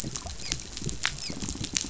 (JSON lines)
{"label": "biophony, dolphin", "recorder": "SoundTrap 500"}